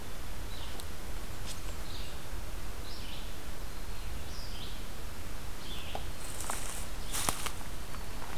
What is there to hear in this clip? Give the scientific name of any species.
Vireo olivaceus